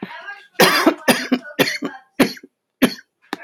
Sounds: Cough